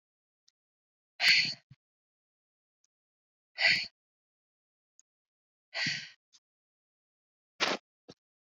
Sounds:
Sigh